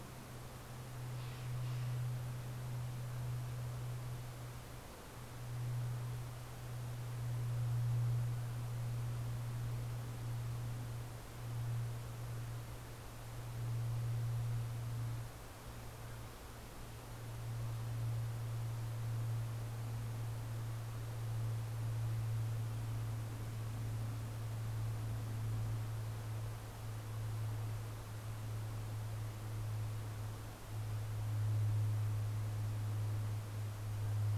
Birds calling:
Steller's Jay (Cyanocitta stelleri)

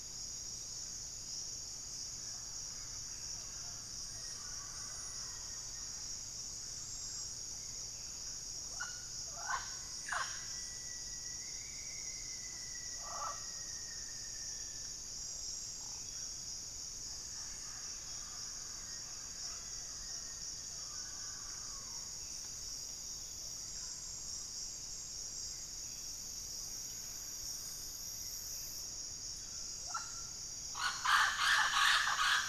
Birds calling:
White-rumped Sirystes (Sirystes albocinereus)
Mealy Parrot (Amazona farinosa)
Black-faced Antthrush (Formicarius analis)
Buff-breasted Wren (Cantorchilus leucotis)
Rufous-fronted Antthrush (Formicarius rufifrons)
Thrush-like Wren (Campylorhynchus turdinus)

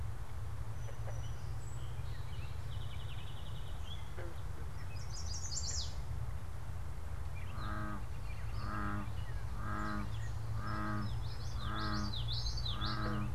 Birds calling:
Common Yellowthroat (Geothlypis trichas)
American Robin (Turdus migratorius)
Chestnut-sided Warbler (Setophaga pensylvanica)
Song Sparrow (Melospiza melodia)

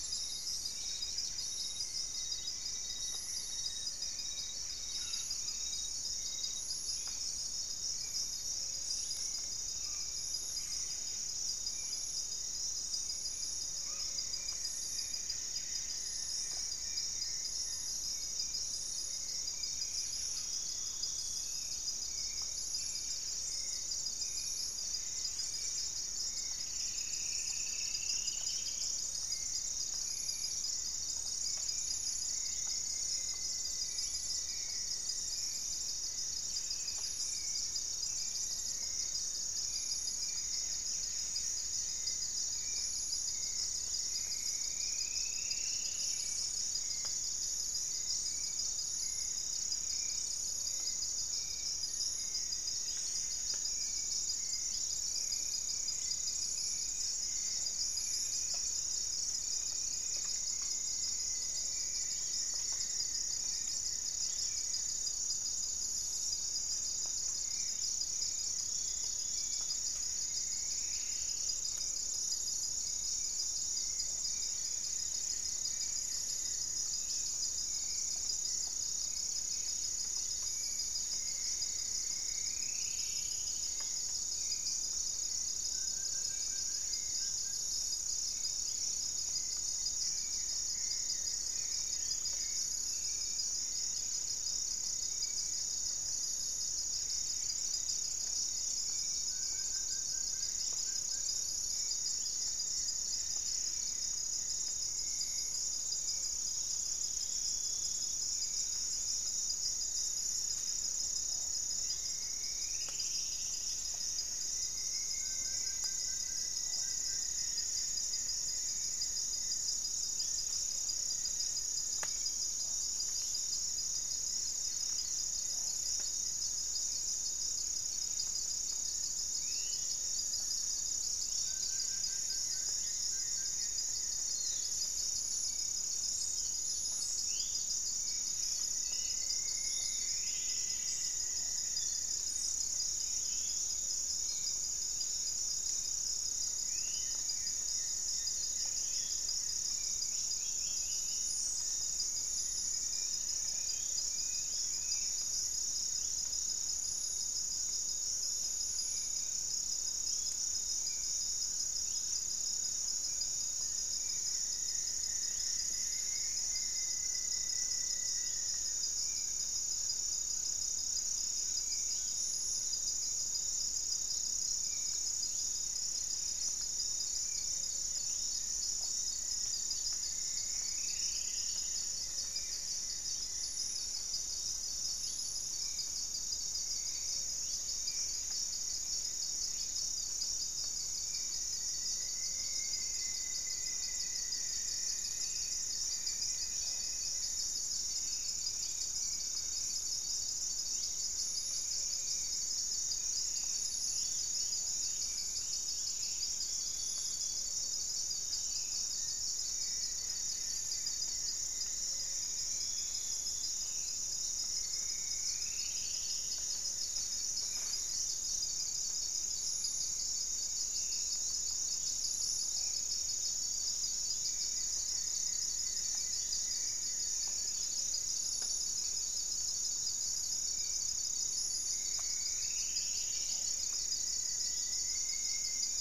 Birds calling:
Spot-winged Antshrike (Pygiptila stellaris)
Buff-throated Saltator (Saltator maximus)
Amazonian Trogon (Trogon ramonianus)
unidentified bird
Hauxwell's Thrush (Turdus hauxwelli)
Wing-barred Piprites (Piprites chloris)
Paradise Tanager (Tangara chilensis)
Goeldi's Antbird (Akletos goeldii)
Gray-fronted Dove (Leptotila rufaxilla)
Piratic Flycatcher (Legatus leucophaius)
Rufous-fronted Antthrush (Formicarius rufifrons)
Buff-breasted Wren (Cantorchilus leucotis)
Dusky-capped Greenlet (Pachysylvia hypoxantha)
Black-faced Antthrush (Formicarius analis)
Striped Woodcreeper (Xiphorhynchus obsoletus)
Gray Antwren (Myrmotherula menetriesii)
Black-spotted Bare-eye (Phlegopsis nigromaculata)

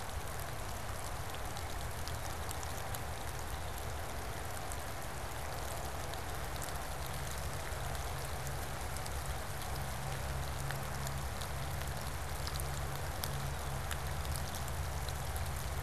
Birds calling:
Blue Jay (Cyanocitta cristata)

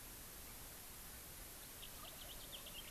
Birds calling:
House Finch (Haemorhous mexicanus)

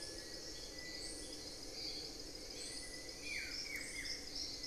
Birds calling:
Gray Antwren (Myrmotherula menetriesii)
Buff-throated Woodcreeper (Xiphorhynchus guttatus)
Little Tinamou (Crypturellus soui)

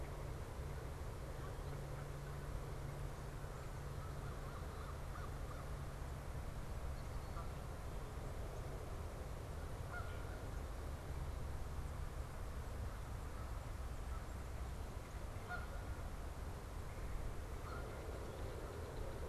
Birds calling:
Canada Goose (Branta canadensis)
American Crow (Corvus brachyrhynchos)

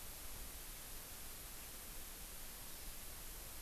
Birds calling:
Hawaii Amakihi (Chlorodrepanis virens)

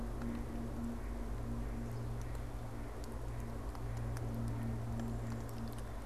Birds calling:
Mallard (Anas platyrhynchos)

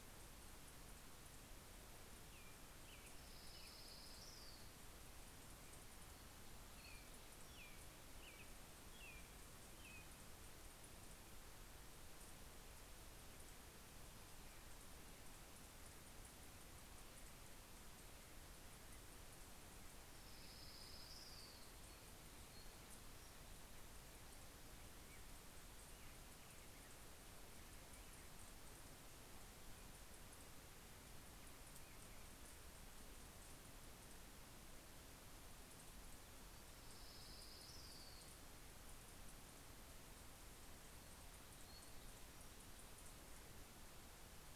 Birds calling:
American Robin (Turdus migratorius)
Orange-crowned Warbler (Leiothlypis celata)

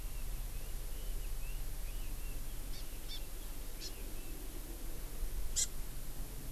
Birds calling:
Red-billed Leiothrix (Leiothrix lutea)
Hawaii Amakihi (Chlorodrepanis virens)

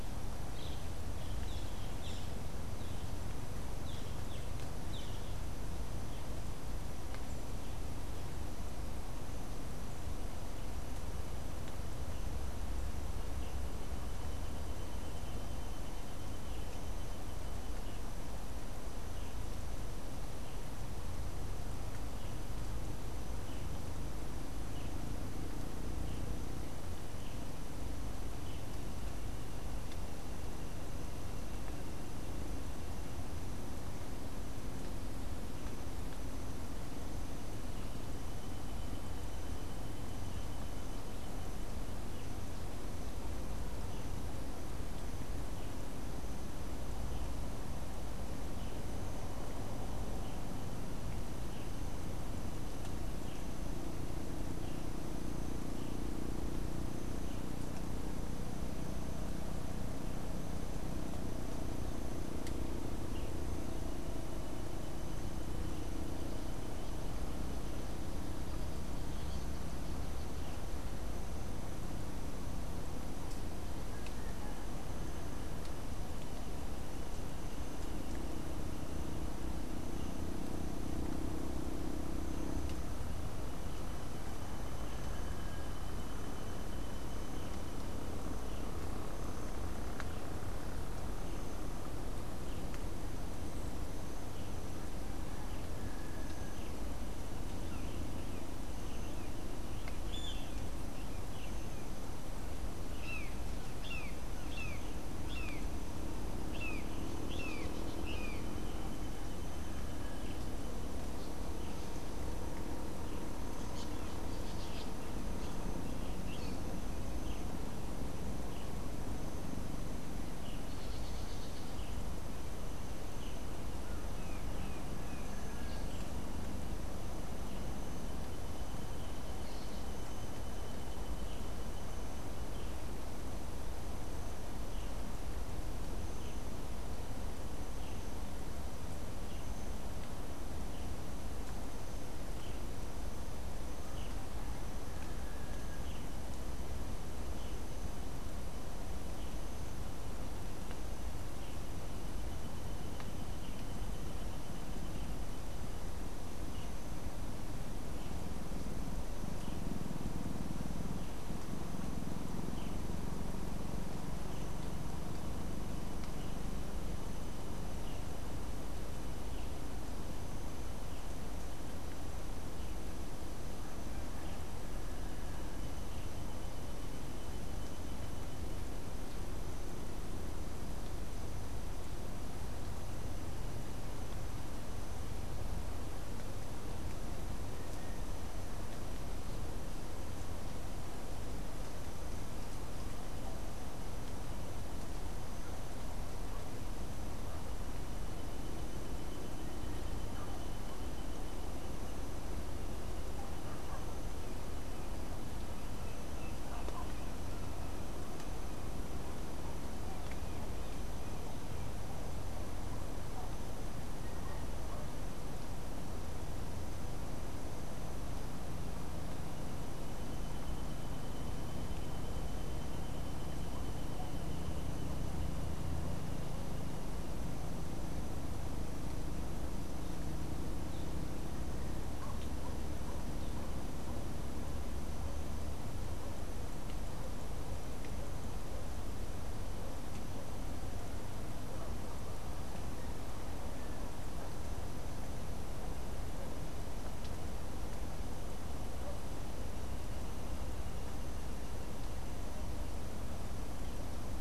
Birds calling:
Orange-fronted Parakeet (Eupsittula canicularis)
Brown Jay (Psilorhinus morio)
Orange-chinned Parakeet (Brotogeris jugularis)
Boat-billed Flycatcher (Megarynchus pitangua)

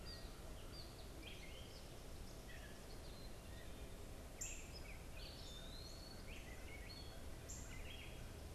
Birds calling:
Black-capped Chickadee (Poecile atricapillus)
Gray Catbird (Dumetella carolinensis)
Eastern Wood-Pewee (Contopus virens)
Northern Cardinal (Cardinalis cardinalis)

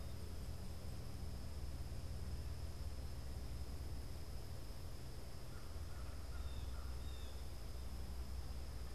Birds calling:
Blue Jay (Cyanocitta cristata)
American Crow (Corvus brachyrhynchos)

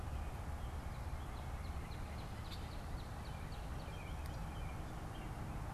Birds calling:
Northern Cardinal (Cardinalis cardinalis)
American Robin (Turdus migratorius)

